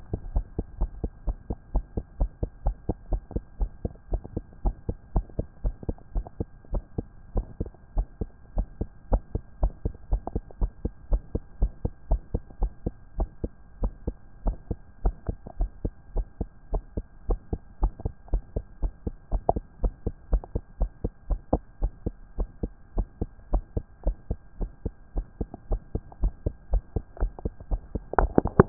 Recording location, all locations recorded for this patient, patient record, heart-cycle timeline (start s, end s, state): tricuspid valve (TV)
pulmonary valve (PV)+tricuspid valve (TV)+mitral valve (MV)
#Age: Child
#Sex: Female
#Height: 150.0 cm
#Weight: 47.4 kg
#Pregnancy status: False
#Murmur: Present
#Murmur locations: pulmonary valve (PV)
#Most audible location: pulmonary valve (PV)
#Systolic murmur timing: Holosystolic
#Systolic murmur shape: Plateau
#Systolic murmur grading: I/VI
#Systolic murmur pitch: Low
#Systolic murmur quality: Blowing
#Diastolic murmur timing: nan
#Diastolic murmur shape: nan
#Diastolic murmur grading: nan
#Diastolic murmur pitch: nan
#Diastolic murmur quality: nan
#Outcome: Normal
#Campaign: 2014 screening campaign
0.00	0.10	systole
0.10	0.18	S2
0.18	0.34	diastole
0.34	0.44	S1
0.44	0.58	systole
0.58	0.66	S2
0.66	0.80	diastole
0.80	0.90	S1
0.90	1.02	systole
1.02	1.10	S2
1.10	1.26	diastole
1.26	1.36	S1
1.36	1.48	systole
1.48	1.58	S2
1.58	1.74	diastole
1.74	1.84	S1
1.84	1.96	systole
1.96	2.04	S2
2.04	2.20	diastole
2.20	2.30	S1
2.30	2.42	systole
2.42	2.50	S2
2.50	2.64	diastole
2.64	2.76	S1
2.76	2.88	systole
2.88	2.96	S2
2.96	3.10	diastole
3.10	3.22	S1
3.22	3.34	systole
3.34	3.44	S2
3.44	3.60	diastole
3.60	3.70	S1
3.70	3.84	systole
3.84	3.92	S2
3.92	4.10	diastole
4.10	4.22	S1
4.22	4.34	systole
4.34	4.44	S2
4.44	4.64	diastole
4.64	4.76	S1
4.76	4.88	systole
4.88	4.96	S2
4.96	5.14	diastole
5.14	5.26	S1
5.26	5.38	systole
5.38	5.46	S2
5.46	5.64	diastole
5.64	5.74	S1
5.74	5.88	systole
5.88	5.96	S2
5.96	6.14	diastole
6.14	6.26	S1
6.26	6.38	systole
6.38	6.48	S2
6.48	6.72	diastole
6.72	6.84	S1
6.84	6.96	systole
6.96	7.06	S2
7.06	7.34	diastole
7.34	7.46	S1
7.46	7.60	systole
7.60	7.70	S2
7.70	7.96	diastole
7.96	8.06	S1
8.06	8.20	systole
8.20	8.30	S2
8.30	8.56	diastole
8.56	8.68	S1
8.68	8.80	systole
8.80	8.88	S2
8.88	9.10	diastole
9.10	9.22	S1
9.22	9.34	systole
9.34	9.42	S2
9.42	9.62	diastole
9.62	9.72	S1
9.72	9.84	systole
9.84	9.94	S2
9.94	10.10	diastole
10.10	10.22	S1
10.22	10.34	systole
10.34	10.44	S2
10.44	10.60	diastole
10.60	10.72	S1
10.72	10.84	systole
10.84	10.92	S2
10.92	11.10	diastole
11.10	11.22	S1
11.22	11.34	systole
11.34	11.42	S2
11.42	11.60	diastole
11.60	11.72	S1
11.72	11.84	systole
11.84	11.92	S2
11.92	12.10	diastole
12.10	12.22	S1
12.22	12.32	systole
12.32	12.42	S2
12.42	12.60	diastole
12.60	12.72	S1
12.72	12.84	systole
12.84	12.94	S2
12.94	13.18	diastole
13.18	13.28	S1
13.28	13.42	systole
13.42	13.52	S2
13.52	13.80	diastole
13.80	13.92	S1
13.92	14.06	systole
14.06	14.16	S2
14.16	14.44	diastole
14.44	14.56	S1
14.56	14.70	systole
14.70	14.78	S2
14.78	15.04	diastole
15.04	15.14	S1
15.14	15.28	systole
15.28	15.36	S2
15.36	15.58	diastole
15.58	15.70	S1
15.70	15.84	systole
15.84	15.92	S2
15.92	16.14	diastole
16.14	16.26	S1
16.26	16.40	systole
16.40	16.48	S2
16.48	16.72	diastole
16.72	16.82	S1
16.82	16.96	systole
16.96	17.04	S2
17.04	17.28	diastole
17.28	17.40	S1
17.40	17.52	systole
17.52	17.60	S2
17.60	17.80	diastole
17.80	17.92	S1
17.92	18.04	systole
18.04	18.12	S2
18.12	18.32	diastole
18.32	18.42	S1
18.42	18.54	systole
18.54	18.64	S2
18.64	18.82	diastole
18.82	18.92	S1
18.92	19.06	systole
19.06	19.14	S2
19.14	19.32	diastole
19.32	19.42	S1
19.42	19.54	systole
19.54	19.64	S2
19.64	19.82	diastole
19.82	19.94	S1
19.94	20.06	systole
20.06	20.14	S2
20.14	20.30	diastole
20.30	20.42	S1
20.42	20.54	systole
20.54	20.62	S2
20.62	20.80	diastole
20.80	20.90	S1
20.90	21.02	systole
21.02	21.12	S2
21.12	21.28	diastole
21.28	21.40	S1
21.40	21.52	systole
21.52	21.62	S2
21.62	21.80	diastole
21.80	21.92	S1
21.92	22.04	systole
22.04	22.14	S2
22.14	22.38	diastole
22.38	22.48	S1
22.48	22.62	systole
22.62	22.72	S2
22.72	22.96	diastole
22.96	23.08	S1
23.08	23.20	systole
23.20	23.30	S2
23.30	23.52	diastole
23.52	23.64	S1
23.64	23.76	systole
23.76	23.84	S2
23.84	24.04	diastole
24.04	24.16	S1
24.16	24.30	systole
24.30	24.38	S2
24.38	24.60	diastole
24.60	24.70	S1
24.70	24.84	systole
24.84	24.94	S2
24.94	25.14	diastole
25.14	25.26	S1
25.26	25.40	systole
25.40	25.48	S2
25.48	25.70	diastole
25.70	25.80	S1
25.80	25.94	systole
25.94	26.02	S2
26.02	26.22	diastole
26.22	26.34	S1
26.34	26.44	systole
26.44	26.54	S2
26.54	26.72	diastole
26.72	26.82	S1
26.82	26.94	systole
26.94	27.04	S2
27.04	27.20	diastole
27.20	27.32	S1
27.32	27.44	systole
27.44	27.54	S2
27.54	27.70	diastole